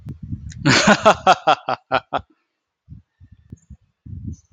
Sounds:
Laughter